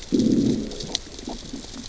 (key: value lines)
label: biophony, growl
recorder: SoundTrap 600 or HydroMoth